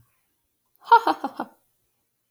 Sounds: Laughter